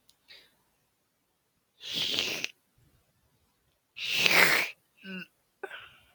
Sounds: Throat clearing